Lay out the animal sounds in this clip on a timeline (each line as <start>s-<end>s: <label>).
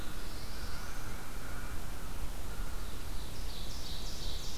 0.0s-1.2s: Black-throated Blue Warbler (Setophaga caerulescens)
0.0s-3.5s: American Crow (Corvus brachyrhynchos)
2.5s-4.6s: Ovenbird (Seiurus aurocapilla)